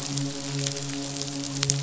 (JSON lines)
{"label": "biophony, midshipman", "recorder": "SoundTrap 500"}